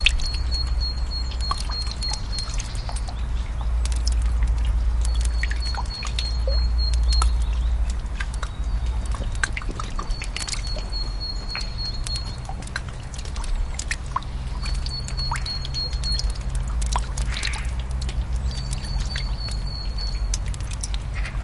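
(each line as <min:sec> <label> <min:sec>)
0:00.0 A water drop falls. 0:00.3
0:00.0 Birds chirping. 0:21.4
0:00.0 White noise. 0:21.4
0:01.4 Water is dripping. 0:07.3
0:08.2 Something is moving in the water. 0:10.9
0:08.2 Water is dripping. 0:10.9
0:11.5 Something is moving in the water. 0:21.4
0:11.5 Water is dripping. 0:21.4
0:17.1 A crow caws. 0:17.7
0:20.8 A duck is quacking. 0:21.4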